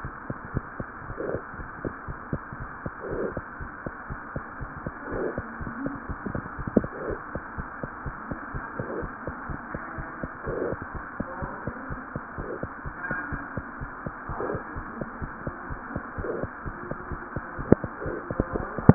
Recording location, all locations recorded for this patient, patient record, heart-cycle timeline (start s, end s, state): mitral valve (MV)
aortic valve (AV)+pulmonary valve (PV)+mitral valve (MV)
#Age: Infant
#Sex: Female
#Height: 70.0 cm
#Weight: 8.0 kg
#Pregnancy status: False
#Murmur: Unknown
#Murmur locations: nan
#Most audible location: nan
#Systolic murmur timing: nan
#Systolic murmur shape: nan
#Systolic murmur grading: nan
#Systolic murmur pitch: nan
#Systolic murmur quality: nan
#Diastolic murmur timing: nan
#Diastolic murmur shape: nan
#Diastolic murmur grading: nan
#Diastolic murmur pitch: nan
#Diastolic murmur quality: nan
#Outcome: Normal
#Campaign: 2015 screening campaign
0.00	0.12	S1
0.12	0.26	systole
0.26	0.36	S2
0.36	0.52	diastole
0.52	0.66	S1
0.66	0.78	systole
0.78	0.88	S2
0.88	1.08	diastole
1.08	1.18	S1
1.18	1.26	systole
1.26	1.40	S2
1.40	1.58	diastole
1.58	1.70	S1
1.70	1.84	systole
1.84	1.92	S2
1.92	2.08	diastole
2.08	2.18	S1
2.18	2.30	systole
2.30	2.40	S2
2.40	2.58	diastole
2.58	2.68	S1
2.68	2.82	systole
2.82	2.92	S2
2.92	3.10	diastole
3.10	3.28	S1
3.28	3.36	systole
3.36	3.44	S2
3.44	3.60	diastole
3.60	3.70	S1
3.70	3.84	systole
3.84	3.94	S2
3.94	4.10	diastole
4.10	4.20	S1
4.20	4.36	systole
4.36	4.46	S2
4.46	4.60	diastole
4.60	4.70	S1
4.70	4.82	systole
4.82	4.94	S2
4.94	5.12	diastole
5.12	5.30	S1
5.30	5.36	systole
5.36	5.46	S2
5.46	5.60	diastole
5.60	5.68	S1
5.68	5.83	systole
5.83	5.93	S2
5.93	6.07	diastole
6.07	6.17	S1
6.17	6.34	systole
6.34	6.46	S2
6.46	6.57	diastole
6.57	6.66	S1